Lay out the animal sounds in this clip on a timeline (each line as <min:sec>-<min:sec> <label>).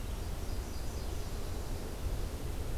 0:00.4-0:02.0 Nashville Warbler (Leiothlypis ruficapilla)